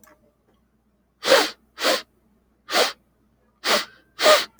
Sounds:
Sniff